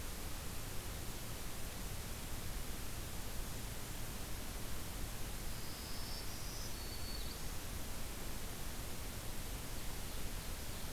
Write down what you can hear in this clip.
Black-throated Green Warbler